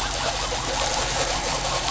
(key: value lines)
label: anthrophony, boat engine
recorder: SoundTrap 500